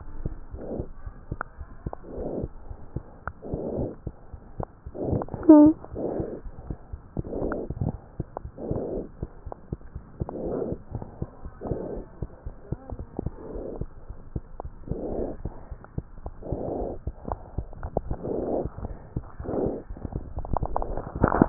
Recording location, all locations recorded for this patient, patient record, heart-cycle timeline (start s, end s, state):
pulmonary valve (PV)
aortic valve (AV)+pulmonary valve (PV)+tricuspid valve (TV)+mitral valve (MV)
#Age: Infant
#Sex: Female
#Height: 75.0 cm
#Weight: 9.5 kg
#Pregnancy status: False
#Murmur: Absent
#Murmur locations: nan
#Most audible location: nan
#Systolic murmur timing: nan
#Systolic murmur shape: nan
#Systolic murmur grading: nan
#Systolic murmur pitch: nan
#Systolic murmur quality: nan
#Diastolic murmur timing: nan
#Diastolic murmur shape: nan
#Diastolic murmur grading: nan
#Diastolic murmur pitch: nan
#Diastolic murmur quality: nan
#Outcome: Normal
#Campaign: 2015 screening campaign
0.00	10.93	unannotated
10.93	10.99	S1
10.99	11.20	systole
11.20	11.30	S2
11.30	11.42	diastole
11.42	11.51	S1
11.51	11.68	systole
11.68	11.77	S2
11.77	11.94	diastole
11.94	12.04	S1
12.04	12.20	systole
12.20	12.30	S2
12.30	12.44	diastole
12.44	12.54	S1
12.54	12.70	systole
12.70	12.79	S2
12.79	12.97	diastole
12.97	13.06	S1
13.06	13.22	systole
13.22	13.32	S2
13.32	13.52	diastole
13.52	13.61	S1
13.61	13.76	systole
13.76	13.90	S2
13.90	14.08	diastole
14.08	14.15	S1
14.15	14.34	systole
14.34	14.42	S2
14.42	14.62	diastole
14.62	14.71	S1
14.71	14.88	systole
14.88	14.97	S2
14.97	15.14	diastole
15.14	15.26	S1
15.26	15.42	systole
15.42	15.58	S2
15.58	15.70	diastole
15.70	15.80	S1
15.80	15.96	systole
15.96	16.06	S2
16.06	16.22	diastole
16.22	16.33	S1
16.33	16.46	systole
16.46	16.60	S2
16.60	21.49	unannotated